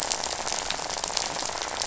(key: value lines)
label: biophony, rattle
recorder: SoundTrap 500